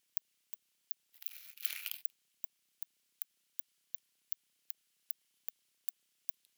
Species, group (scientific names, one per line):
Cyrtaspis scutata
Orthoptera